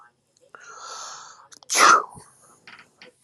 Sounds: Sneeze